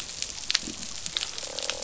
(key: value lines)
label: biophony, croak
recorder: SoundTrap 500